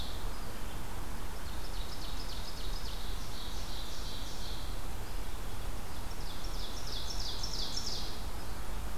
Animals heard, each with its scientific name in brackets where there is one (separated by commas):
Red-eyed Vireo (Vireo olivaceus), Ovenbird (Seiurus aurocapilla)